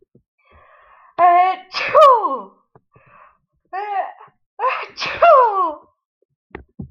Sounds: Sneeze